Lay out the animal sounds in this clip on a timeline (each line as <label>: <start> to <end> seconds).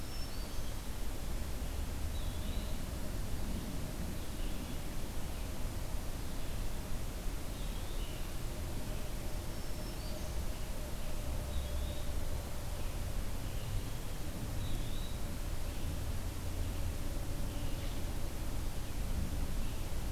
Black-throated Green Warbler (Setophaga virens): 0.0 to 0.8 seconds
Eastern Wood-Pewee (Contopus virens): 2.0 to 2.9 seconds
Eastern Wood-Pewee (Contopus virens): 7.5 to 8.1 seconds
Red-eyed Vireo (Vireo olivaceus): 7.9 to 20.1 seconds
Black-throated Green Warbler (Setophaga virens): 9.1 to 10.4 seconds
Eastern Wood-Pewee (Contopus virens): 11.4 to 12.1 seconds
Eastern Wood-Pewee (Contopus virens): 14.4 to 15.2 seconds